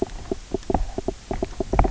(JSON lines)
{"label": "biophony, knock croak", "recorder": "SoundTrap 300"}